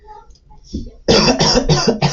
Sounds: Cough